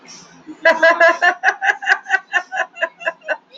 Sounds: Laughter